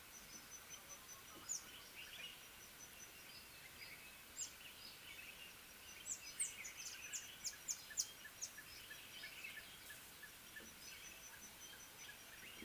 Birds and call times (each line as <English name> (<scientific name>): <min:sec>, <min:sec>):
Speckled Mousebird (Colius striatus): 0:04.5, 0:07.5
Red-fronted Tinkerbird (Pogoniulus pusillus): 0:09.6